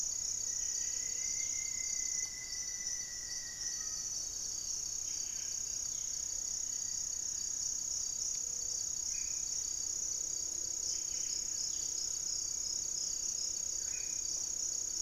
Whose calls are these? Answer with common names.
Rufous-fronted Antthrush, Buff-breasted Wren, Gray-fronted Dove, Gray-cowled Wood-Rail, unidentified bird, Black-faced Antthrush